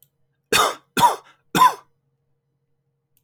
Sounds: Cough